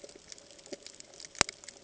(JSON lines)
{"label": "ambient", "recorder": "HydroMoth"}